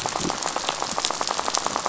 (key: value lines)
label: biophony, rattle
recorder: SoundTrap 500